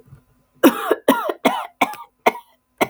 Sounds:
Cough